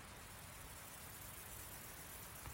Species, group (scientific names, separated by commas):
Gomphocerippus rufus, Orthoptera